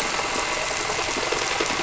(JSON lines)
{"label": "anthrophony, boat engine", "recorder": "SoundTrap 300"}